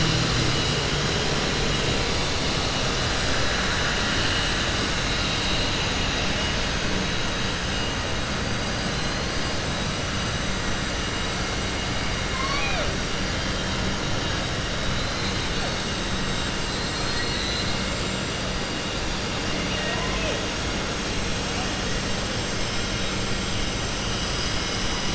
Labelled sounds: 12.2	12.9	killer whale, southern resident, 0.56 to 5.5 kHz

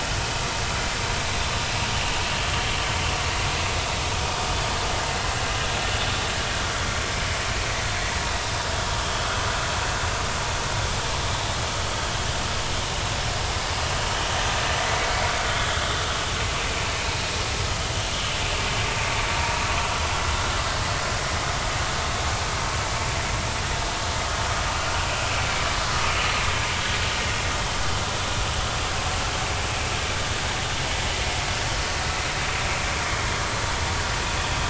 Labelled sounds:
9.0	9.3	vessel noise, 3.1 to 3.3 kHz
15.6	15.8	vessel noise, 3.2 to 3.5 kHz
19.4	19.6	vessel noise, 0.90 to 0.99 kHz

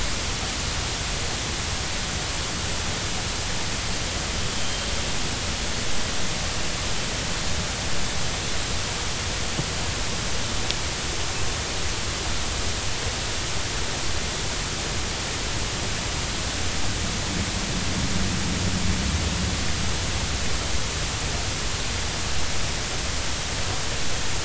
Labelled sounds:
4.6	4.8	Pacific white-sided dolphin, 3.0 to 3.2 kHz

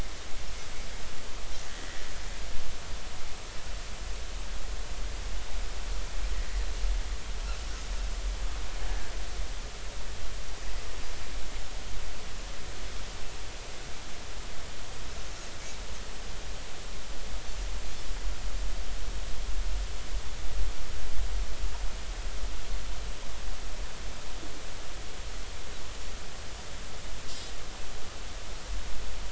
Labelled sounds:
1.7	2.0	Pacific white-sided dolphin, 1.8 to 2.0 kHz

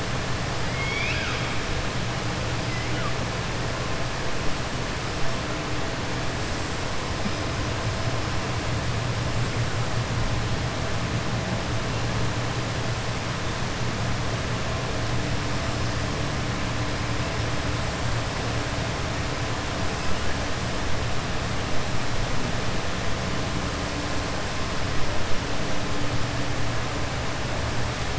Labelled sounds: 0.6	1.5	killer whale, southern resident, 1.3 to 5.5 kHz
2.6	3.1	killer whale, southern resident, 1.1 to 3.0 kHz

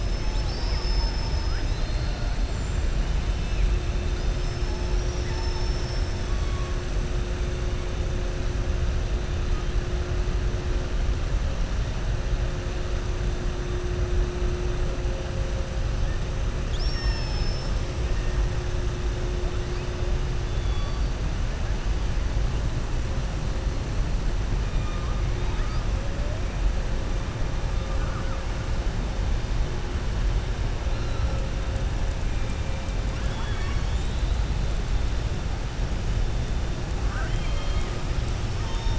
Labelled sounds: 4.8	6.2	killer whale, southern resident, 4.4 to 6.3 kHz
16.6	17.8	killer whale, southern resident, 0.94 to 6.9 kHz
20.4	21.1	killer whale, southern resident, 3.4 to 4.7 kHz
33.0	34.4	killer whale, southern resident, 0.92 to 5.4 kHz
37.0	37.9	killer whale, southern resident, 0.68 to 4.3 kHz

